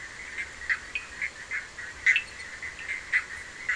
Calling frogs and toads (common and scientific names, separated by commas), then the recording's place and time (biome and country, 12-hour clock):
Bischoff's tree frog (Boana bischoffi), Cochran's lime tree frog (Sphaenorhynchus surdus)
Atlantic Forest, Brazil, 11:30pm